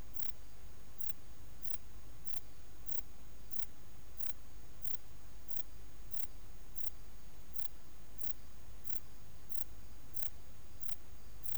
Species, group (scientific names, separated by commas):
Pterolepis spoliata, Orthoptera